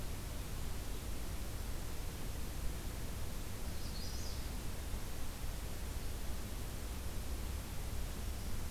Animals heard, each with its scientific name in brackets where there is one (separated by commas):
Magnolia Warbler (Setophaga magnolia)